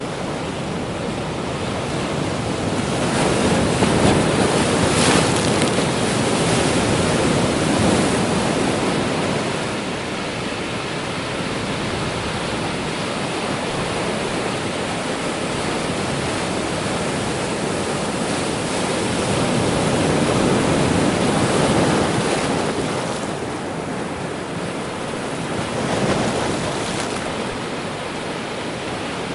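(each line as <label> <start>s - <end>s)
Wind blows steadily over the sea with a soft whooshing sound. 0.0s - 29.3s
Sea waves crash forcefully against rocks. 2.9s - 9.5s
Sea waves and water drops splashing lightly. 5.0s - 6.1s
Sea waves and water drops splashing lightly. 22.9s - 23.5s
A wave splashes against the rocks. 25.7s - 26.8s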